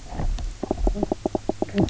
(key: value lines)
label: biophony, knock croak
recorder: SoundTrap 300